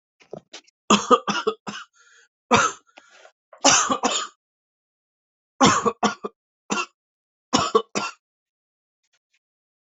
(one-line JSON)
{"expert_labels": [{"quality": "good", "cough_type": "dry", "dyspnea": false, "wheezing": false, "stridor": false, "choking": false, "congestion": false, "nothing": true, "diagnosis": "obstructive lung disease", "severity": "mild"}], "age": 38, "gender": "male", "respiratory_condition": true, "fever_muscle_pain": false, "status": "COVID-19"}